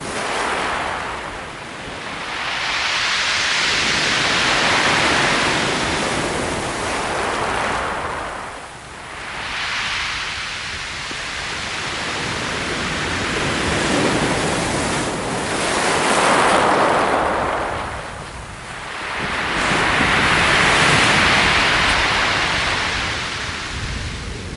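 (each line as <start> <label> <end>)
0.0 Loud and heavy wind is blowing at the sea. 24.6
0.0 Waves grow louder as they approach and break against the cliff. 24.6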